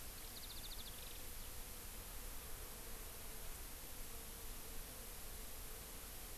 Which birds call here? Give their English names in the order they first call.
Warbling White-eye